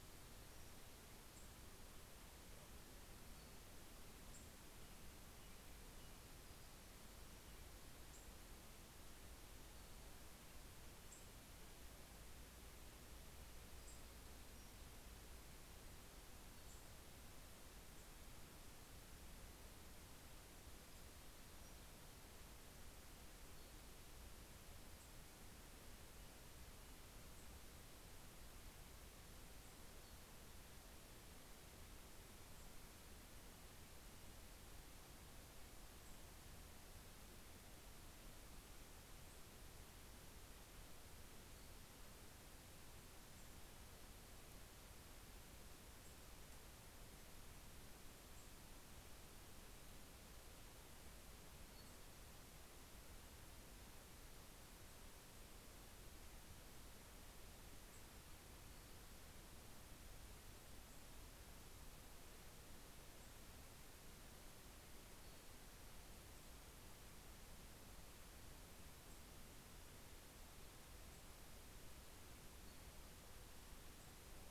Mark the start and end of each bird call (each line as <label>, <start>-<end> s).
Nashville Warbler (Leiothlypis ruficapilla), 0.0-8.7 s
American Robin (Turdus migratorius), 5.0-8.2 s
Nashville Warbler (Leiothlypis ruficapilla), 9.0-17.5 s